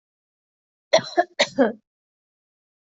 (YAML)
expert_labels:
- quality: good
  cough_type: dry
  dyspnea: false
  wheezing: false
  stridor: false
  choking: false
  congestion: false
  nothing: true
  diagnosis: upper respiratory tract infection
  severity: unknown